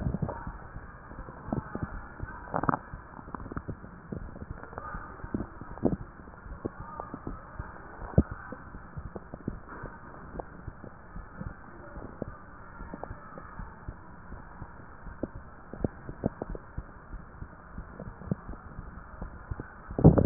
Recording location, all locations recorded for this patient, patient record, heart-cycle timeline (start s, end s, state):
mitral valve (MV)
aortic valve (AV)+pulmonary valve (PV)+tricuspid valve (TV)+mitral valve (MV)
#Age: nan
#Sex: Female
#Height: nan
#Weight: nan
#Pregnancy status: True
#Murmur: Absent
#Murmur locations: nan
#Most audible location: nan
#Systolic murmur timing: nan
#Systolic murmur shape: nan
#Systolic murmur grading: nan
#Systolic murmur pitch: nan
#Systolic murmur quality: nan
#Diastolic murmur timing: nan
#Diastolic murmur shape: nan
#Diastolic murmur grading: nan
#Diastolic murmur pitch: nan
#Diastolic murmur quality: nan
#Outcome: Normal
#Campaign: 2015 screening campaign
0.00	10.73	unannotated
10.73	11.14	diastole
11.14	11.28	S1
11.28	11.38	systole
11.38	11.52	S2
11.52	11.93	diastole
11.93	12.08	S1
12.08	12.22	systole
12.22	12.36	S2
12.36	12.77	diastole
12.77	12.94	S1
12.94	13.02	systole
13.02	13.16	S2
13.16	13.56	diastole
13.56	13.68	S1
13.68	13.85	systole
13.85	13.95	S2
13.95	14.28	diastole
14.28	14.44	S1
14.44	14.56	systole
14.56	14.68	S2
14.68	15.03	diastole
15.03	15.19	S1
15.19	15.32	systole
15.32	15.43	S2
15.43	15.77	diastole
15.77	15.88	S1
15.88	16.06	systole
16.06	16.22	S2
16.22	16.48	diastole
16.48	16.62	S1
16.62	16.75	systole
16.75	16.87	S2
16.87	17.10	diastole
17.10	17.20	S1
17.20	17.39	systole
17.39	17.48	S2
17.48	17.71	diastole
17.71	17.86	S1
17.86	20.26	unannotated